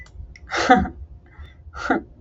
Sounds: Laughter